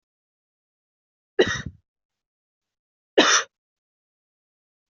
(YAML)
expert_labels:
- quality: good
  cough_type: dry
  dyspnea: false
  wheezing: false
  stridor: false
  choking: false
  congestion: false
  nothing: true
  diagnosis: healthy cough
  severity: pseudocough/healthy cough
age: 30
gender: female
respiratory_condition: false
fever_muscle_pain: false
status: healthy